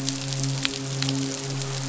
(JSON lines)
{"label": "biophony, midshipman", "recorder": "SoundTrap 500"}